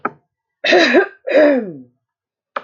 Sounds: Throat clearing